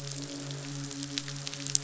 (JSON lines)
{"label": "biophony, midshipman", "recorder": "SoundTrap 500"}